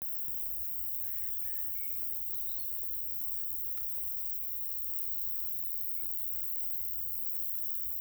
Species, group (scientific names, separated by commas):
Roeseliana roeselii, Orthoptera